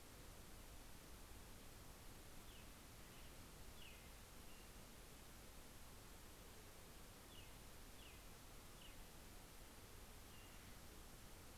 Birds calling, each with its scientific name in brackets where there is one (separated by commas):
Pacific-slope Flycatcher (Empidonax difficilis)